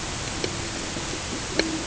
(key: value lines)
label: ambient
recorder: HydroMoth